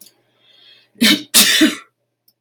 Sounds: Sneeze